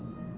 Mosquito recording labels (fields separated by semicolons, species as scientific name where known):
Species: Aedes albopictus; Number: one; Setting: insect culture